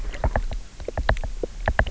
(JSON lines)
{"label": "biophony, knock", "recorder": "SoundTrap 300"}